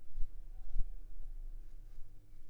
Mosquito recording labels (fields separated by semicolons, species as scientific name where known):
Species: Anopheles arabiensis; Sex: female; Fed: unfed; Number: one; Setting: cup